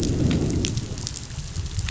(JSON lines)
{"label": "biophony, growl", "recorder": "SoundTrap 500"}